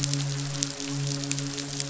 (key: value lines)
label: biophony, midshipman
recorder: SoundTrap 500